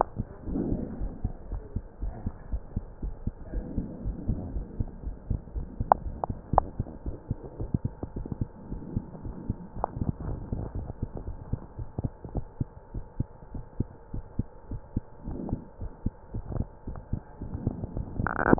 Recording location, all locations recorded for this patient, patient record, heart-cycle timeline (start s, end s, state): mitral valve (MV)
aortic valve (AV)+pulmonary valve (PV)+tricuspid valve (TV)+mitral valve (MV)
#Age: Child
#Sex: Male
#Height: nan
#Weight: nan
#Pregnancy status: False
#Murmur: Absent
#Murmur locations: nan
#Most audible location: nan
#Systolic murmur timing: nan
#Systolic murmur shape: nan
#Systolic murmur grading: nan
#Systolic murmur pitch: nan
#Systolic murmur quality: nan
#Diastolic murmur timing: nan
#Diastolic murmur shape: nan
#Diastolic murmur grading: nan
#Diastolic murmur pitch: nan
#Diastolic murmur quality: nan
#Outcome: Normal
#Campaign: 2015 screening campaign
0.00	1.24	unannotated
1.24	1.34	S2
1.34	1.50	diastole
1.50	1.64	S1
1.64	1.72	systole
1.72	1.86	S2
1.86	2.02	diastole
2.02	2.14	S1
2.14	2.24	systole
2.24	2.34	S2
2.34	2.48	diastole
2.48	2.60	S1
2.60	2.74	systole
2.74	2.88	S2
2.88	3.02	diastole
3.02	3.14	S1
3.14	3.22	systole
3.22	3.34	S2
3.34	3.52	diastole
3.52	3.68	S1
3.68	3.76	systole
3.76	3.90	S2
3.90	4.04	diastole
4.04	4.16	S1
4.16	4.26	systole
4.26	4.40	S2
4.40	4.54	diastole
4.54	4.68	S1
4.68	4.78	systole
4.78	4.92	S2
4.92	5.06	diastole
5.06	5.16	S1
5.16	5.24	systole
5.24	5.38	S2
5.38	5.54	diastole
5.54	5.68	S1
5.68	5.78	systole
5.78	5.88	S2
5.88	6.04	diastole
6.04	6.18	S1
6.18	6.28	systole
6.28	6.40	S2
6.40	6.54	diastole
6.54	6.68	S1
6.68	6.76	systole
6.76	6.90	S2
6.90	7.06	diastole
7.06	7.18	S1
7.18	7.28	systole
7.28	7.38	S2
7.38	7.58	diastole
7.58	7.68	S1
7.68	7.82	systole
7.82	7.92	S2
7.92	8.14	diastole
8.14	8.26	S1
8.26	8.38	systole
8.38	8.48	S2
8.48	8.68	diastole
8.68	8.80	S1
8.80	8.92	systole
8.92	9.04	S2
9.04	9.24	diastole
9.24	9.36	S1
9.36	9.48	systole
9.48	9.60	S2
9.60	9.78	diastole
9.78	9.88	S1
9.88	9.98	systole
9.98	10.08	S2
10.08	10.24	diastole
10.24	10.40	S1
10.40	10.50	systole
10.50	10.60	S2
10.60	10.74	diastole
10.74	10.90	S1
10.90	11.00	systole
11.00	11.10	S2
11.10	11.26	diastole
11.26	11.38	S1
11.38	11.50	systole
11.50	11.62	S2
11.62	11.76	diastole
11.76	11.88	S1
11.88	11.97	systole
11.97	12.12	S2
12.12	12.30	diastole
12.30	12.44	S1
12.44	12.56	systole
12.56	12.70	S2
12.70	12.92	diastole
12.92	13.04	S1
13.04	13.18	systole
13.18	13.34	S2
13.34	13.54	diastole
13.54	13.64	S1
13.64	13.78	systole
13.78	13.90	S2
13.90	14.12	diastole
14.12	14.24	S1
14.24	14.34	systole
14.34	14.48	S2
14.48	14.70	diastole
14.70	14.82	S1
14.82	14.92	systole
14.92	15.06	S2
15.06	15.26	diastole
15.26	15.40	S1
15.40	15.48	systole
15.48	15.62	S2
15.62	15.78	diastole
15.78	15.92	S1
15.92	16.04	systole
16.04	16.16	S2
16.16	16.34	diastole
16.34	16.46	S1
16.46	16.52	systole
16.52	16.68	S2
16.68	16.88	diastole
16.88	16.98	S1
16.98	17.08	systole
17.08	17.24	S2
17.24	17.42	diastole
17.42	18.59	unannotated